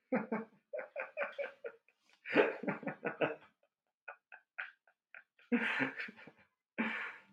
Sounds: Laughter